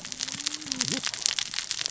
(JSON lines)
{"label": "biophony, cascading saw", "recorder": "SoundTrap 600 or HydroMoth"}